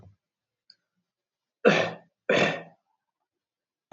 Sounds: Throat clearing